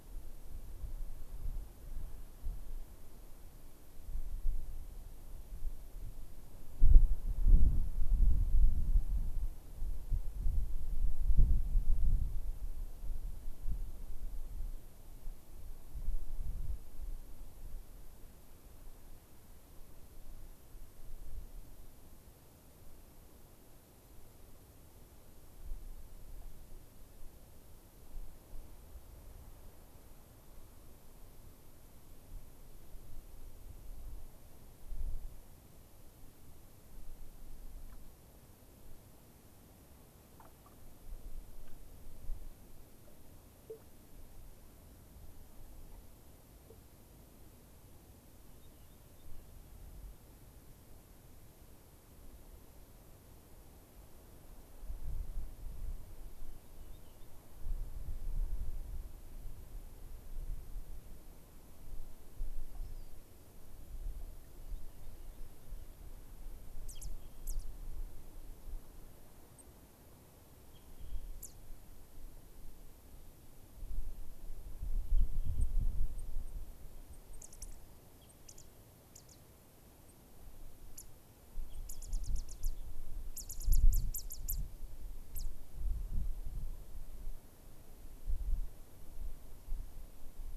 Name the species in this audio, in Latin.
Salpinctes obsoletus, Zonotrichia leucophrys